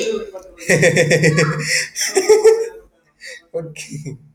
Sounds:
Laughter